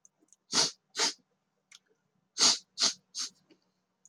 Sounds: Sniff